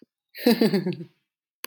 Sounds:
Laughter